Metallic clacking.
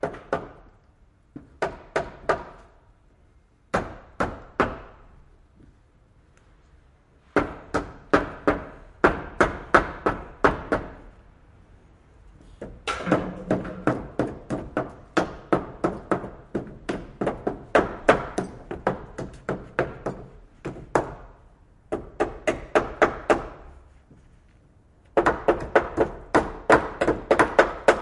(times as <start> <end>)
12.8 14.0